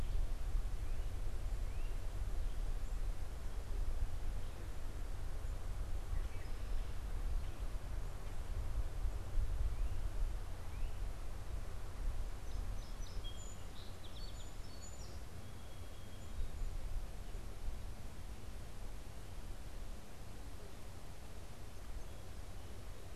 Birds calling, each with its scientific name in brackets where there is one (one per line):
Song Sparrow (Melospiza melodia)